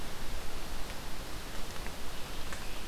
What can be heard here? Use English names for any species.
Scarlet Tanager